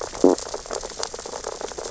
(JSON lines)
{"label": "biophony, stridulation", "recorder": "SoundTrap 600 or HydroMoth"}
{"label": "biophony, sea urchins (Echinidae)", "recorder": "SoundTrap 600 or HydroMoth"}